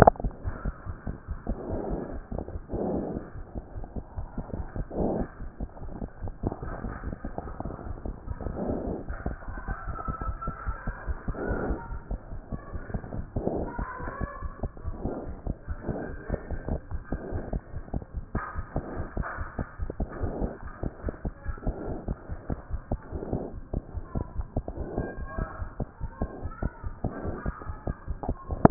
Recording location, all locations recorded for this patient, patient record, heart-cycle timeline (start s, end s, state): pulmonary valve (PV)
aortic valve (AV)+pulmonary valve (PV)+tricuspid valve (TV)+mitral valve (MV)
#Age: Child
#Sex: Female
#Height: 103.0 cm
#Weight: 20.2 kg
#Pregnancy status: False
#Murmur: Absent
#Murmur locations: nan
#Most audible location: nan
#Systolic murmur timing: nan
#Systolic murmur shape: nan
#Systolic murmur grading: nan
#Systolic murmur pitch: nan
#Systolic murmur quality: nan
#Diastolic murmur timing: nan
#Diastolic murmur shape: nan
#Diastolic murmur grading: nan
#Diastolic murmur pitch: nan
#Diastolic murmur quality: nan
#Outcome: Normal
#Campaign: 2014 screening campaign
0.00	20.53	unannotated
20.53	20.63	diastole
20.63	20.71	S1
20.71	20.83	systole
20.83	20.88	S2
20.88	21.03	diastole
21.03	21.10	S1
21.10	21.24	systole
21.24	21.31	S2
21.31	21.48	diastole
21.48	21.55	S1
21.55	21.66	systole
21.66	21.72	S2
21.72	21.87	diastole
21.87	21.95	S1
21.95	22.08	systole
22.08	22.16	S2
22.16	22.30	diastole
22.30	22.36	S1
22.36	22.50	systole
22.50	22.56	S2
22.56	22.72	diastole
22.72	22.79	S1
22.79	22.90	systole
22.90	23.00	S2
23.00	23.15	diastole
23.15	28.70	unannotated